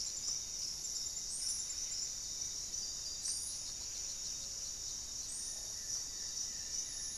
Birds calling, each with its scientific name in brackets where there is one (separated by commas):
Goeldi's Antbird (Akletos goeldii), unidentified bird, Paradise Tanager (Tangara chilensis), Buff-breasted Wren (Cantorchilus leucotis)